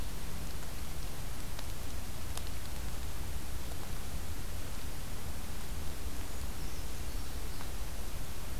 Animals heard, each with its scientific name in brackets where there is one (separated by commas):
Black-throated Blue Warbler (Setophaga caerulescens), Brown Creeper (Certhia americana)